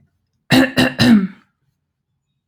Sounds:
Throat clearing